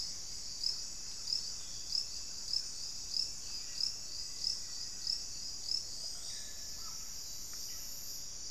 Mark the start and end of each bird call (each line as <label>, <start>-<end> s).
Black-faced Antthrush (Formicarius analis), 3.3-5.7 s
Yellow-rumped Cacique (Cacicus cela), 6.0-6.9 s
Black-faced Cotinga (Conioptilon mcilhennyi), 6.7-7.1 s